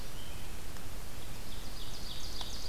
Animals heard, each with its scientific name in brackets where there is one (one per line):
Ovenbird (Seiurus aurocapilla)